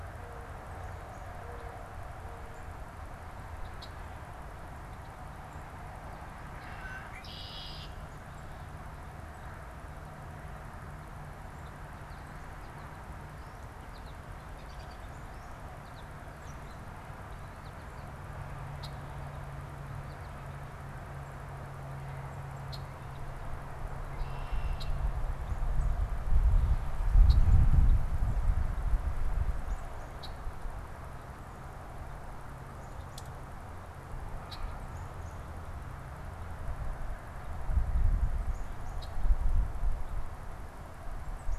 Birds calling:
Red-winged Blackbird (Agelaius phoeniceus), American Robin (Turdus migratorius), American Goldfinch (Spinus tristis)

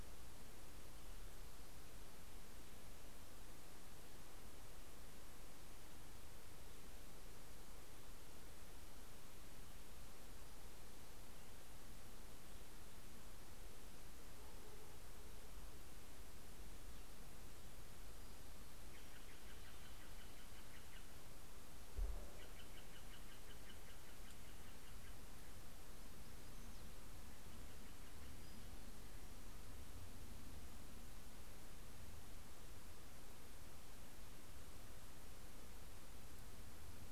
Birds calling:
Steller's Jay (Cyanocitta stelleri), Townsend's Warbler (Setophaga townsendi)

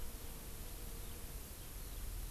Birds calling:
Eurasian Skylark (Alauda arvensis)

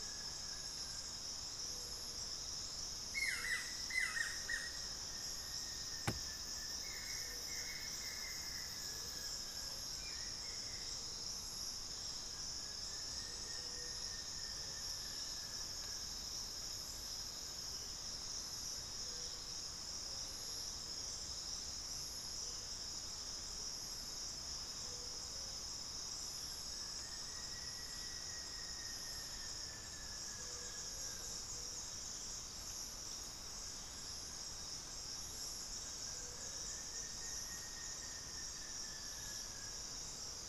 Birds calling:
unidentified bird, Buff-throated Woodcreeper (Xiphorhynchus guttatus), Plain-winged Antshrike (Thamnophilus schistaceus)

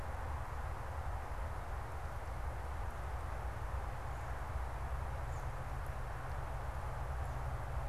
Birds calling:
unidentified bird

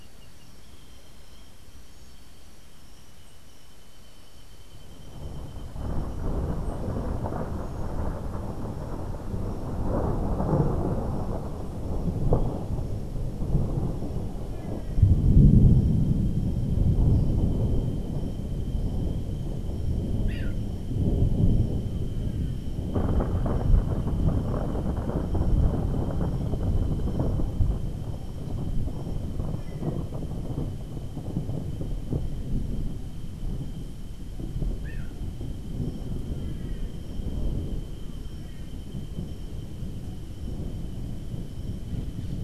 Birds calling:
Boat-billed Flycatcher (Megarynchus pitangua), Long-tailed Manakin (Chiroxiphia linearis)

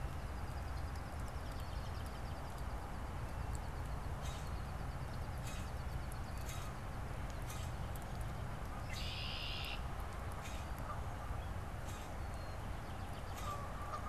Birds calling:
Canada Goose (Branta canadensis), unidentified bird, Common Grackle (Quiscalus quiscula), Red-winged Blackbird (Agelaius phoeniceus), American Robin (Turdus migratorius)

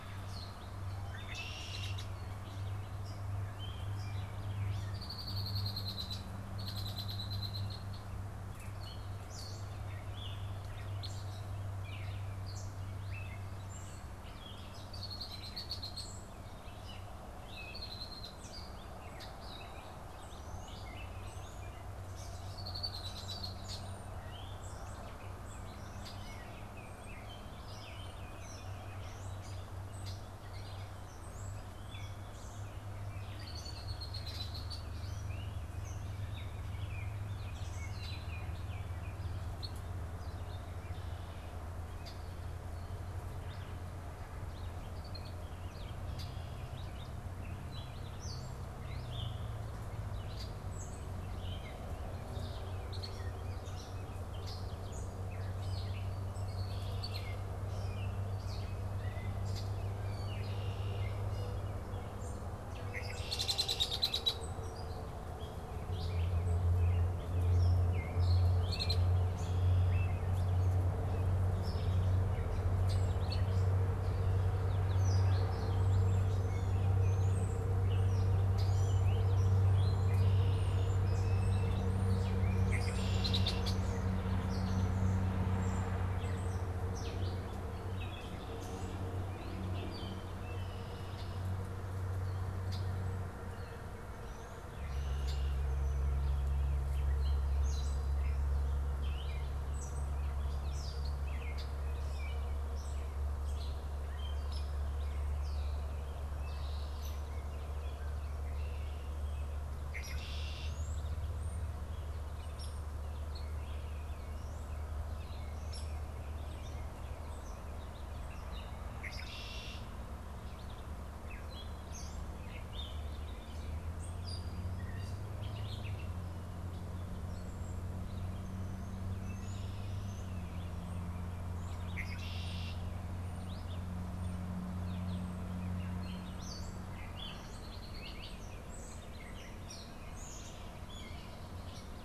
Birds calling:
Hairy Woodpecker (Dryobates villosus), Gray Catbird (Dumetella carolinensis), Red-eyed Vireo (Vireo olivaceus), Red-winged Blackbird (Agelaius phoeniceus), Baltimore Oriole (Icterus galbula)

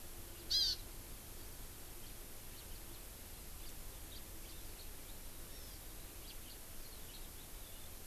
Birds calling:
House Finch (Haemorhous mexicanus), Hawaii Amakihi (Chlorodrepanis virens)

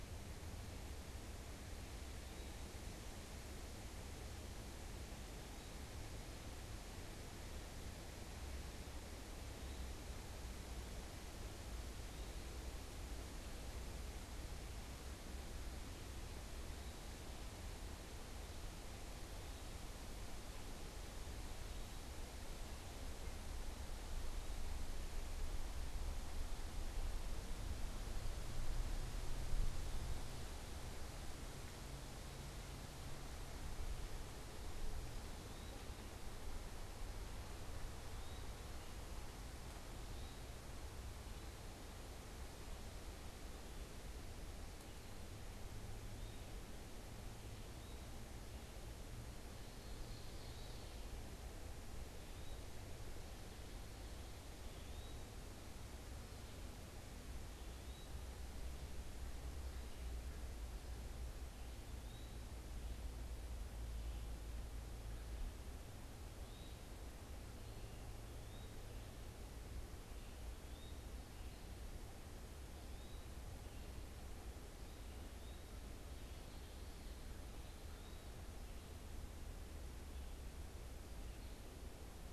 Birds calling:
Ovenbird (Seiurus aurocapilla), Eastern Wood-Pewee (Contopus virens)

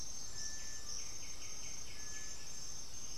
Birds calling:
White-winged Becard (Pachyramphus polychopterus), Black-throated Antbird (Myrmophylax atrothorax), Undulated Tinamou (Crypturellus undulatus), Cinereous Tinamou (Crypturellus cinereus)

